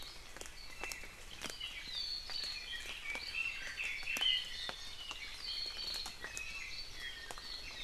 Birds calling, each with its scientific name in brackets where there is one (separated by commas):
Iiwi (Drepanis coccinea), Red-billed Leiothrix (Leiothrix lutea)